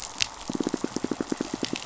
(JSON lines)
{"label": "biophony, pulse", "recorder": "SoundTrap 500"}